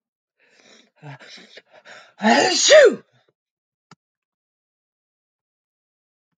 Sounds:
Sneeze